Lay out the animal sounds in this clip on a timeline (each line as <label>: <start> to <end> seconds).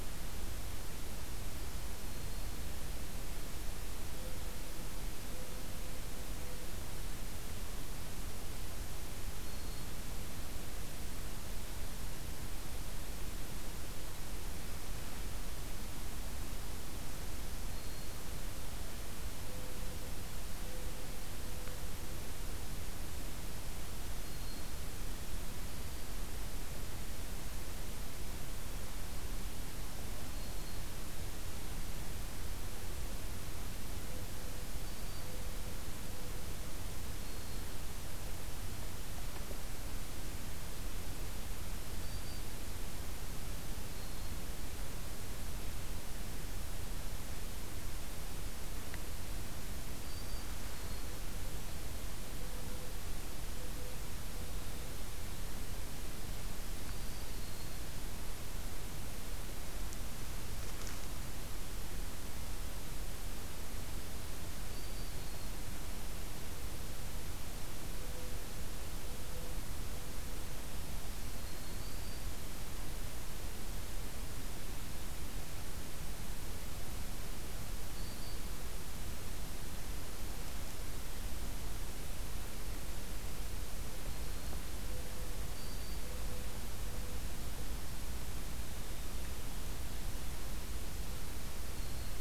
Black-throated Green Warbler (Setophaga virens): 9.3 to 10.0 seconds
Black-throated Green Warbler (Setophaga virens): 17.5 to 18.2 seconds
Black-throated Green Warbler (Setophaga virens): 24.0 to 25.0 seconds
Black-throated Green Warbler (Setophaga virens): 25.5 to 26.3 seconds
Black-throated Green Warbler (Setophaga virens): 34.7 to 35.4 seconds
Black-throated Green Warbler (Setophaga virens): 36.9 to 37.7 seconds
Black-throated Green Warbler (Setophaga virens): 41.8 to 42.5 seconds
Black-throated Green Warbler (Setophaga virens): 49.9 to 51.3 seconds
Black-throated Green Warbler (Setophaga virens): 56.7 to 57.8 seconds
Black-throated Green Warbler (Setophaga virens): 64.6 to 65.7 seconds
Black-throated Green Warbler (Setophaga virens): 71.1 to 72.3 seconds
Black-throated Green Warbler (Setophaga virens): 77.8 to 78.5 seconds
Black-throated Green Warbler (Setophaga virens): 83.9 to 84.7 seconds
Black-throated Green Warbler (Setophaga virens): 85.3 to 86.1 seconds
Black-throated Green Warbler (Setophaga virens): 91.6 to 92.2 seconds